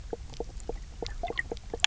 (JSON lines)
{"label": "biophony, knock croak", "recorder": "SoundTrap 300"}